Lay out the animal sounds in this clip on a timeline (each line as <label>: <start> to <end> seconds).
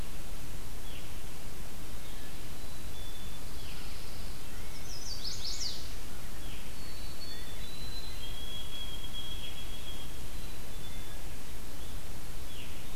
Veery (Catharus fuscescens): 0.7 to 1.1 seconds
Black-capped Chickadee (Poecile atricapillus): 2.5 to 3.5 seconds
Pine Warbler (Setophaga pinus): 3.3 to 4.5 seconds
Chestnut-sided Warbler (Setophaga pensylvanica): 4.6 to 5.9 seconds
Veery (Catharus fuscescens): 6.3 to 6.7 seconds
White-throated Sparrow (Zonotrichia albicollis): 6.6 to 10.8 seconds
Black-capped Chickadee (Poecile atricapillus): 6.9 to 7.7 seconds
Black-capped Chickadee (Poecile atricapillus): 10.4 to 11.2 seconds
Veery (Catharus fuscescens): 12.4 to 12.8 seconds